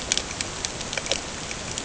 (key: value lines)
label: ambient
recorder: HydroMoth